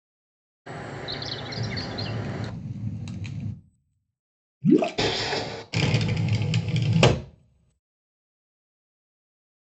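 First, chirping can be heard. While that goes on, crackling is audible. Then water gurgles. Afterwards, there is the sound of wooden furniture moving. Next, a glass window closing is heard.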